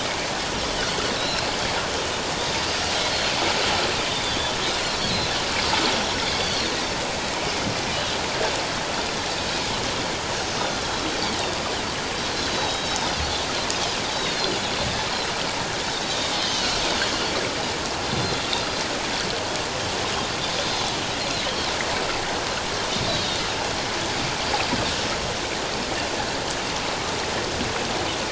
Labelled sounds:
1.2	1.5	Pacific white-sided dolphin, 2.5 to 4.3 kHz
4.1	4.5	Pacific white-sided dolphin, 3.4 to 3.7 kHz
6.3	6.7	Pacific white-sided dolphin, 4.1 to 5.0 kHz
10.6	11.0	Pacific white-sided dolphin, 3.2 to 3.7 kHz
12.3	13.0	Pacific white-sided dolphin, 3.8 to 4.3 kHz
14.1	14.6	Pacific white-sided dolphin, 3.3 to 4.4 kHz
16.4	16.7	Pacific white-sided dolphin, 2.7 to 3.3 kHz
20.6	20.9	Pacific white-sided dolphin, 3.4 to 4.2 kHz
21.2	21.5	Pacific white-sided dolphin, 3.8 to 4.3 kHz
23.1	23.4	Pacific white-sided dolphin, 3.6 to 3.8 kHz

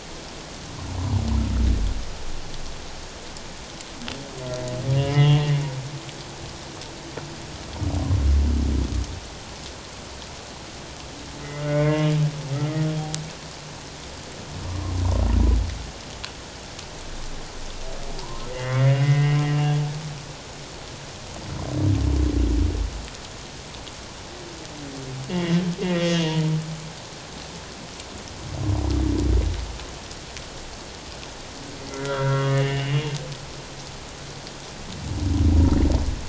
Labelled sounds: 5.2	5.4	humpback whale, 2.7 to 3.1 kHz
11.6	12.1	humpback whale, 1.0 to 2.3 kHz
14.6	14.9	humpback whale, 0.94 to 1.2 kHz
18.2	19.4	humpback whale, 0.88 to 2.3 kHz
25.3	26.5	humpback whale, 0.91 to 3.3 kHz
31.9	33.1	humpback whale, 1.2 to 3.0 kHz

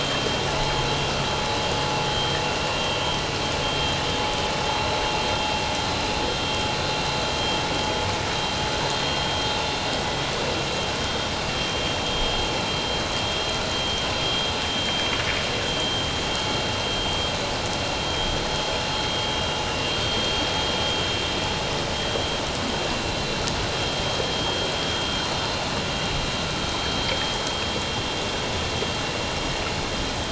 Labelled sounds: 3.6	3.9	vessel noise, 3.16 to 3.25 kHz
11.6	12.3	vessel noise, 3.2 to 3.3 kHz
14.6	15.1	vessel noise, 3.1 to 3.2 kHz

